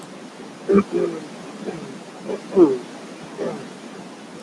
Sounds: Throat clearing